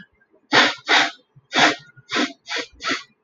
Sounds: Sniff